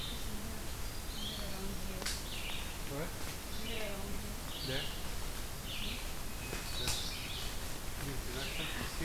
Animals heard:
Hermit Thrush (Catharus guttatus)
Red-eyed Vireo (Vireo olivaceus)

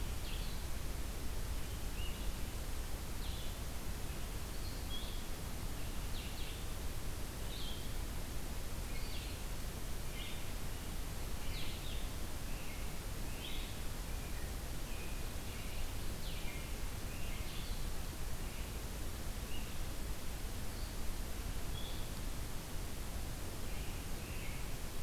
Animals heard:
Blue-headed Vireo (Vireo solitarius)
American Robin (Turdus migratorius)

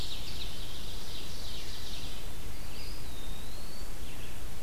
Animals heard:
Red-eyed Vireo (Vireo olivaceus)
Mourning Warbler (Geothlypis philadelphia)
Ovenbird (Seiurus aurocapilla)
Eastern Wood-Pewee (Contopus virens)

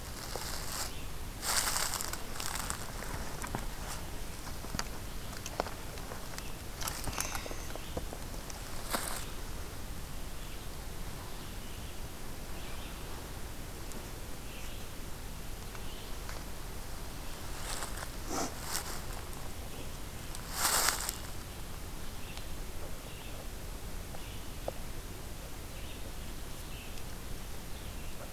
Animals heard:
Red-eyed Vireo (Vireo olivaceus)

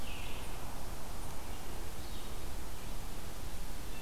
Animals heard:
American Robin (Turdus migratorius)
Red-eyed Vireo (Vireo olivaceus)

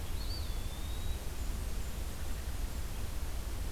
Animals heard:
Blackburnian Warbler (Setophaga fusca)
Eastern Wood-Pewee (Contopus virens)

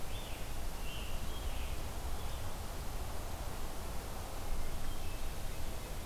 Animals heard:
Scarlet Tanager (Piranga olivacea)
Hermit Thrush (Catharus guttatus)

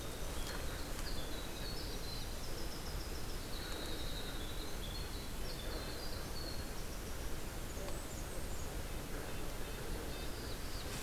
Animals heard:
Black-throated Blue Warbler (Setophaga caerulescens)
Winter Wren (Troglodytes hiemalis)
Blackburnian Warbler (Setophaga fusca)
Red-breasted Nuthatch (Sitta canadensis)

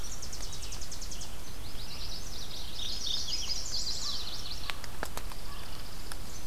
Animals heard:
Chestnut-sided Warbler (Setophaga pensylvanica)
Chipping Sparrow (Spizella passerina)
Yellow-rumped Warbler (Setophaga coronata)
American Crow (Corvus brachyrhynchos)
Red-eyed Vireo (Vireo olivaceus)
Tennessee Warbler (Leiothlypis peregrina)
Mourning Warbler (Geothlypis philadelphia)

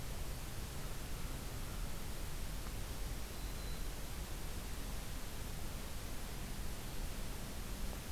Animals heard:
Black-throated Green Warbler (Setophaga virens)

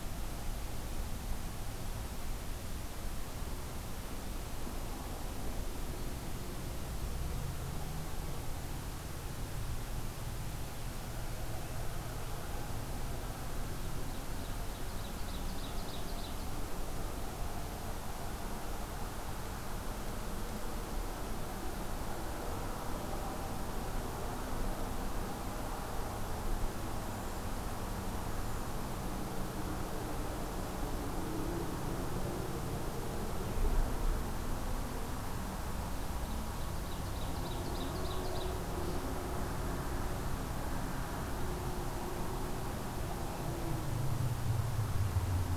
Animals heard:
Ovenbird (Seiurus aurocapilla)

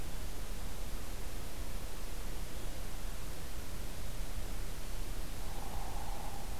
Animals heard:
Hairy Woodpecker (Dryobates villosus)

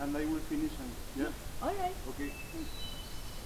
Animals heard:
Hermit Thrush (Catharus guttatus)

